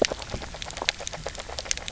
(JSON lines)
{"label": "biophony, grazing", "recorder": "SoundTrap 300"}